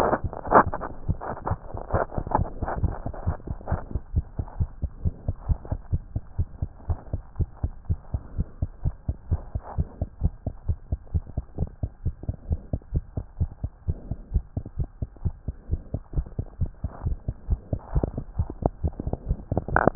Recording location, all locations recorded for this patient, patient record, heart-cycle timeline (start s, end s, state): tricuspid valve (TV)
aortic valve (AV)+pulmonary valve (PV)+tricuspid valve (TV)+mitral valve (MV)
#Age: Child
#Sex: Female
#Height: 89.0 cm
#Weight: 14.1 kg
#Pregnancy status: False
#Murmur: Absent
#Murmur locations: nan
#Most audible location: nan
#Systolic murmur timing: nan
#Systolic murmur shape: nan
#Systolic murmur grading: nan
#Systolic murmur pitch: nan
#Systolic murmur quality: nan
#Diastolic murmur timing: nan
#Diastolic murmur shape: nan
#Diastolic murmur grading: nan
#Diastolic murmur pitch: nan
#Diastolic murmur quality: nan
#Outcome: Normal
#Campaign: 2015 screening campaign
0.00	3.48	unannotated
3.48	3.58	S2
3.58	3.70	diastole
3.70	3.82	S1
3.82	3.94	systole
3.94	4.02	S2
4.02	4.14	diastole
4.14	4.26	S1
4.26	4.38	systole
4.38	4.46	S2
4.46	4.58	diastole
4.58	4.70	S1
4.70	4.82	systole
4.82	4.92	S2
4.92	5.04	diastole
5.04	5.12	S1
5.12	5.26	systole
5.26	5.38	S2
5.38	5.47	diastole
5.47	5.60	S1
5.60	5.70	systole
5.70	5.80	S2
5.80	5.90	diastole
5.90	6.02	S1
6.02	6.12	systole
6.12	6.22	S2
6.22	6.37	diastole
6.37	6.48	S1
6.48	6.60	systole
6.60	6.70	S2
6.70	6.85	diastole
6.85	7.00	S1
7.00	7.11	systole
7.11	7.22	S2
7.22	7.38	diastole
7.38	7.48	S1
7.48	7.62	systole
7.62	7.74	S2
7.74	7.87	diastole
7.87	8.00	S1
8.00	8.12	systole
8.12	8.22	S2
8.22	8.36	diastole
8.36	8.48	S1
8.48	8.59	systole
8.59	8.68	S2
8.68	8.84	diastole
8.84	8.92	S1
8.92	9.07	systole
9.07	9.16	S2
9.16	9.30	diastole
9.30	9.40	S1
9.40	9.52	systole
9.52	9.62	S2
9.62	9.76	diastole
9.76	9.85	S1
9.85	9.98	systole
9.98	10.08	S2
10.08	10.20	diastole
10.20	10.32	S1
10.32	10.45	systole
10.45	10.54	S2
10.54	10.66	diastole
10.66	10.78	S1
10.78	10.90	systole
10.90	11.00	S2
11.00	11.12	diastole
11.12	11.24	S1
11.24	11.34	systole
11.34	11.44	S2
11.44	11.59	diastole
11.59	11.70	S1
11.70	11.81	systole
11.81	11.89	S2
11.89	12.04	diastole
12.04	12.14	S1
12.14	12.27	systole
12.27	12.36	S2
12.36	12.49	diastole
12.49	12.60	S1
12.60	12.72	systole
12.72	12.80	S2
12.80	12.92	diastole
12.92	13.02	S1
13.02	13.15	systole
13.15	13.23	S2
13.23	13.38	diastole
13.38	13.50	S1
13.50	13.62	systole
13.62	13.72	S2
13.72	13.84	diastole
13.84	13.98	S1
13.98	14.08	systole
14.08	14.18	S2
14.18	14.32	diastole
14.32	14.44	S1
14.44	14.55	systole
14.55	14.64	S2
14.64	14.77	diastole
14.77	14.88	S1
14.88	15.00	systole
15.00	15.08	S2
15.08	15.23	diastole
15.23	15.34	S1
15.34	15.45	systole
15.45	15.53	S2
15.53	15.68	diastole
15.68	15.79	S1
15.79	15.92	systole
15.92	16.00	S2
16.00	16.12	diastole
16.12	16.25	S1
16.25	16.36	systole
16.36	16.46	S2
16.46	16.59	diastole
16.59	16.69	S1
16.69	16.82	systole
16.82	16.90	S2
16.90	17.01	diastole
17.01	19.95	unannotated